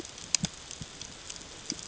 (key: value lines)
label: ambient
recorder: HydroMoth